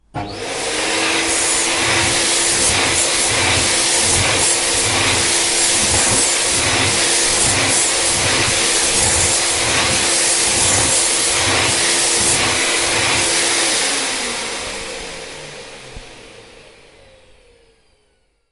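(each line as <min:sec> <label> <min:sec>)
0:00.1 A vacuum cleaner is running repeatedly indoors. 0:15.4
0:00.1 Household chores sounds. 0:15.4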